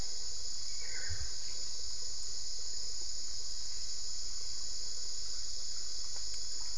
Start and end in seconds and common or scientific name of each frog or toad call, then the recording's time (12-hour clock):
none
4:30am